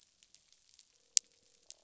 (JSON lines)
{"label": "biophony, croak", "recorder": "SoundTrap 500"}